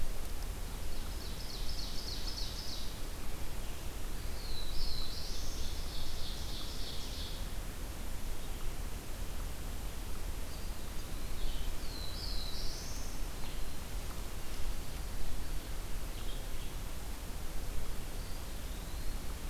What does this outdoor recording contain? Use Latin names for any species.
Vireo solitarius, Seiurus aurocapilla, Setophaga caerulescens, Contopus virens